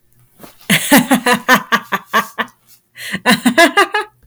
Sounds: Laughter